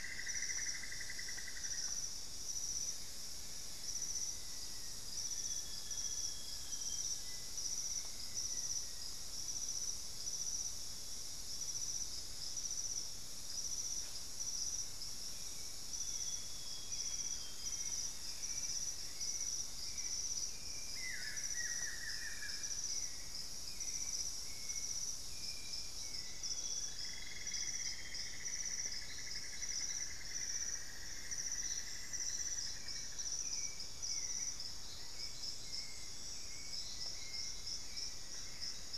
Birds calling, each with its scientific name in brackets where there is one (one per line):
Thrush-like Wren (Campylorhynchus turdinus)
Buff-throated Woodcreeper (Xiphorhynchus guttatus)
Buff-breasted Wren (Cantorchilus leucotis)
Amazonian Grosbeak (Cyanoloxia rothschildii)
Cinnamon-throated Woodcreeper (Dendrexetastes rufigula)
Hauxwell's Thrush (Turdus hauxwelli)
Black-faced Antthrush (Formicarius analis)
Elegant Woodcreeper (Xiphorhynchus elegans)